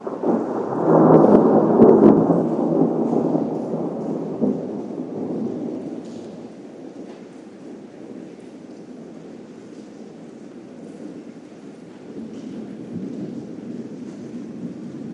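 0.2s Thunder rumbles deeply and loudly in the open environment. 4.4s
4.5s Thunderstorm rumbling softly in the distance with a rhythmic pattern. 15.1s

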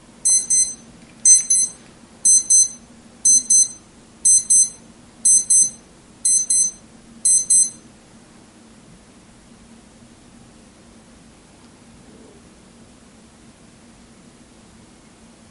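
0.2s A series of paired high-pitched beeps with short pauses and slight background noise. 7.9s

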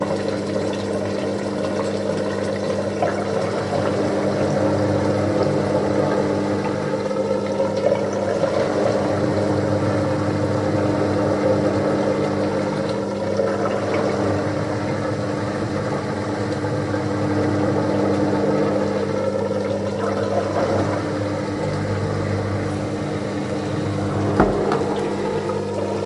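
0.0s The mechanical sound of water running from a sink. 15.2s
0.0s A mechanical sizzling sound. 26.1s
16.0s Water running from a sink. 26.1s
24.2s A short door slapping sound. 24.7s

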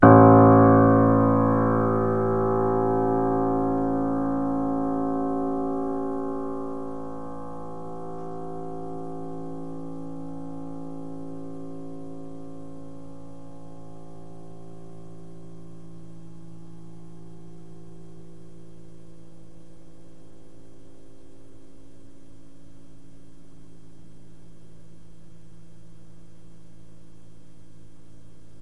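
0.0s A deep tone from a grand piano fades out. 21.9s

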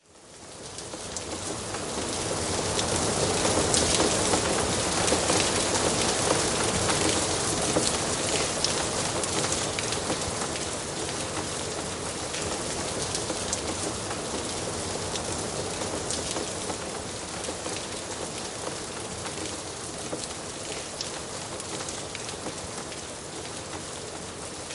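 0.8s Rain falling outside. 17.4s
17.4s The sound of rain heard from inside. 24.7s

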